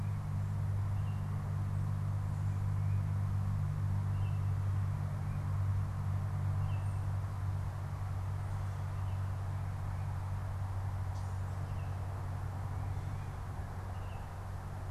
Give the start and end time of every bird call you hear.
0.0s-5.0s: Tufted Titmouse (Baeolophus bicolor)
0.8s-4.4s: Baltimore Oriole (Icterus galbula)
6.4s-14.9s: Baltimore Oriole (Icterus galbula)

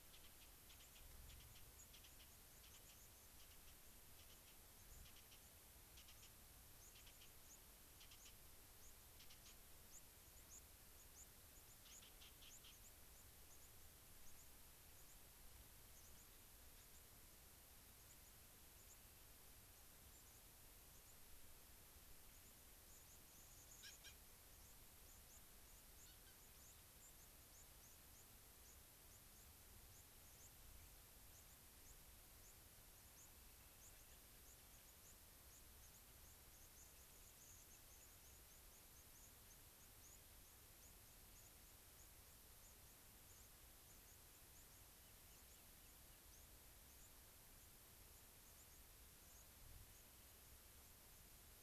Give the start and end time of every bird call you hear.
0.4s-20.5s: White-crowned Sparrow (Zonotrichia leucophrys)
22.1s-50.3s: White-crowned Sparrow (Zonotrichia leucophrys)

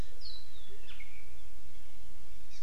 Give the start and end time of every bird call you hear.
2.5s-2.6s: Hawaii Amakihi (Chlorodrepanis virens)

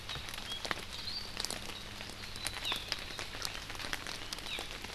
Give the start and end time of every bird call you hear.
2.6s-2.8s: Hawaii Amakihi (Chlorodrepanis virens)
4.4s-4.6s: Hawaii Amakihi (Chlorodrepanis virens)

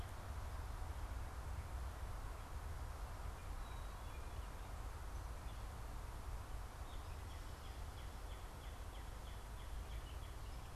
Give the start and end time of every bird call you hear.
6.4s-10.6s: Northern Cardinal (Cardinalis cardinalis)

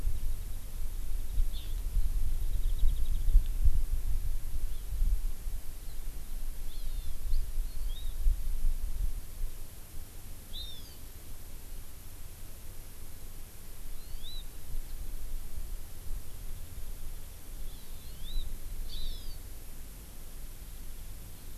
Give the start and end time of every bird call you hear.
1.6s-1.8s: Hawaii Amakihi (Chlorodrepanis virens)
2.5s-3.4s: Warbling White-eye (Zosterops japonicus)
6.7s-7.2s: Hawaii Amakihi (Chlorodrepanis virens)
7.7s-8.2s: Hawaii Amakihi (Chlorodrepanis virens)
10.5s-11.0s: Hawaii Amakihi (Chlorodrepanis virens)
14.0s-14.5s: Hawaii Amakihi (Chlorodrepanis virens)
17.7s-18.5s: Hawaii Amakihi (Chlorodrepanis virens)
18.9s-19.4s: Hawaii Amakihi (Chlorodrepanis virens)

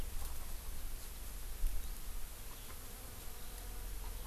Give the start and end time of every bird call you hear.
1.8s-4.3s: Eurasian Skylark (Alauda arvensis)

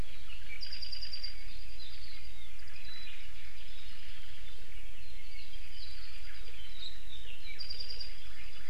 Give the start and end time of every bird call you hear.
0.3s-8.3s: Apapane (Himatione sanguinea)
2.6s-4.8s: Omao (Myadestes obscurus)
2.7s-3.1s: Iiwi (Drepanis coccinea)

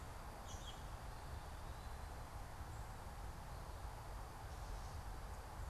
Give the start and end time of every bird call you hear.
0.3s-0.9s: American Robin (Turdus migratorius)

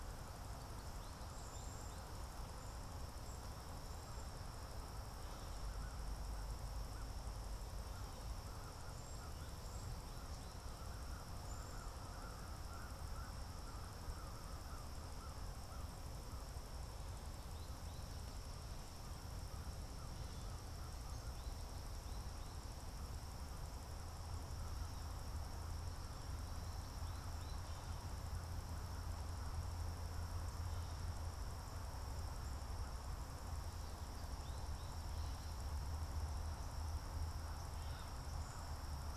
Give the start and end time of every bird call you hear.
0.0s-12.1s: Cedar Waxwing (Bombycilla cedrorum)
0.0s-21.3s: American Crow (Corvus brachyrhynchos)
33.3s-38.3s: American Goldfinch (Spinus tristis)

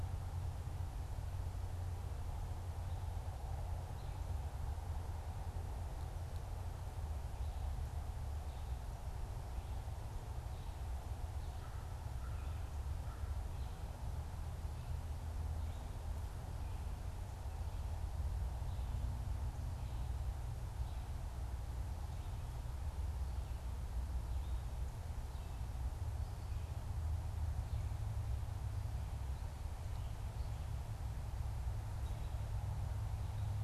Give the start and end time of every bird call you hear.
11.4s-13.7s: American Crow (Corvus brachyrhynchos)

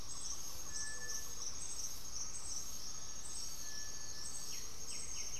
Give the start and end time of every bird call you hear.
0.0s-1.8s: Great Antshrike (Taraba major)
0.0s-5.4s: Cinereous Tinamou (Crypturellus cinereus)
0.0s-5.4s: Gray-fronted Dove (Leptotila rufaxilla)
4.4s-5.4s: White-winged Becard (Pachyramphus polychopterus)

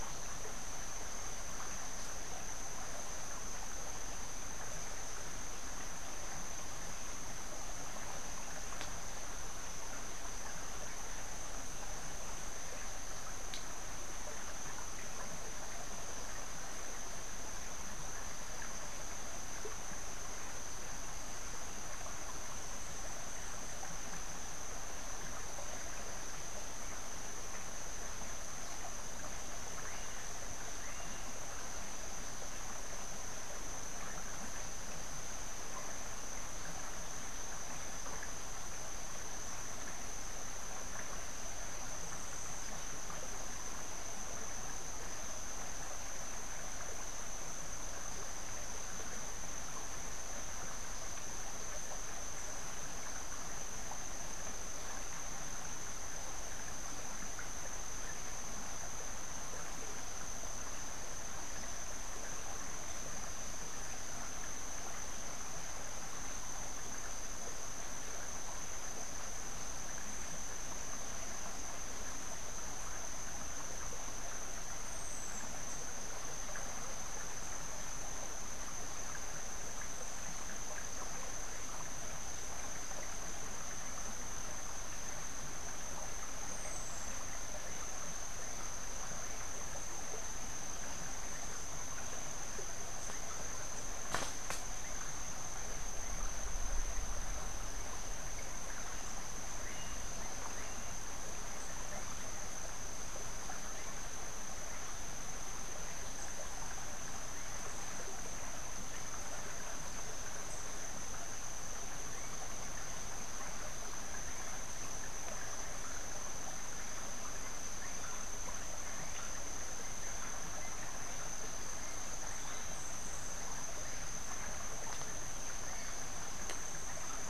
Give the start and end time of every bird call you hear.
29.7s-31.3s: Melodious Blackbird (Dives dives)

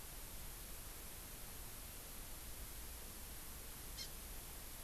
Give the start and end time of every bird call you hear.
4.0s-4.0s: Hawaii Amakihi (Chlorodrepanis virens)

